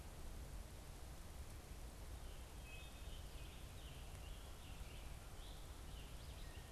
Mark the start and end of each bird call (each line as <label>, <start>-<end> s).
Scarlet Tanager (Piranga olivacea), 1.9-6.3 s
Red-eyed Vireo (Vireo olivaceus), 6.2-6.7 s